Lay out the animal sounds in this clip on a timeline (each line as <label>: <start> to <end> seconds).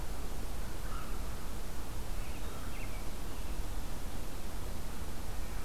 American Robin (Turdus migratorius): 1.9 to 3.6 seconds